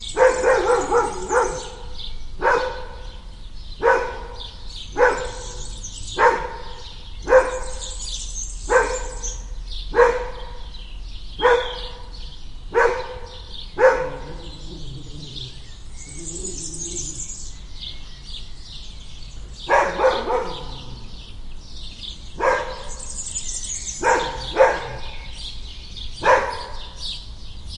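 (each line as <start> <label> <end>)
0.0 Birds are singing. 27.8
0.1 A dog barks repeatedly on the street. 1.7
2.4 A dog barks on the street. 2.8
3.8 A dog barks on the street. 4.2
5.0 A dog barks on the street. 5.2
5.3 A dog growls on the street. 5.9
6.2 A dog barks on the street. 6.4
7.3 A dog barks on the street. 7.5
8.7 A dog barks on the street. 8.9
9.9 A dog barks on the street. 10.2
11.4 A dog barks on the street. 11.7
12.7 A dog barks on the street. 13.0
13.8 A dog barks on the street. 14.0
14.2 A dog is growling. 17.4
19.7 A dog barks repeatedly on the street. 20.4
22.4 A dog barks on the street. 22.7
24.0 A dog barks on the street. 24.8
26.2 A dog barks repeatedly on the street. 26.4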